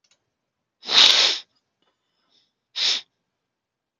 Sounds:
Sniff